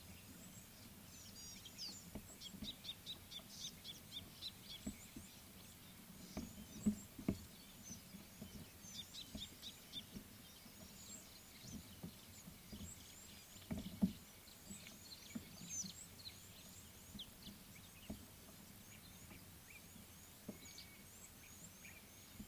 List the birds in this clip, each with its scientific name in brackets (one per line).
Gray-backed Camaroptera (Camaroptera brevicaudata)
Scarlet-chested Sunbird (Chalcomitra senegalensis)